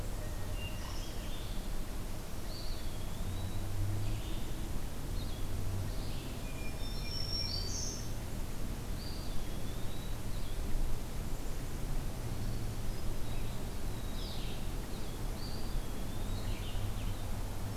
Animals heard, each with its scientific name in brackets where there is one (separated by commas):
Eastern Wood-Pewee (Contopus virens), Black-throated Green Warbler (Setophaga virens), Red-eyed Vireo (Vireo olivaceus), Hermit Thrush (Catharus guttatus)